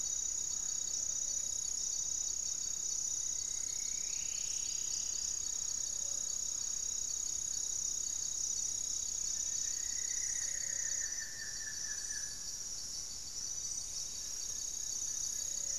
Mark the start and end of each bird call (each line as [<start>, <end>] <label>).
[0.81, 15.79] Gray-fronted Dove (Leptotila rufaxilla)
[2.71, 5.71] Striped Woodcreeper (Xiphorhynchus obsoletus)
[3.21, 6.11] Black-faced Antthrush (Formicarius analis)
[9.01, 12.61] Buff-throated Woodcreeper (Xiphorhynchus guttatus)
[14.11, 15.79] Plain-winged Antshrike (Thamnophilus schistaceus)
[15.01, 15.79] Goeldi's Antbird (Akletos goeldii)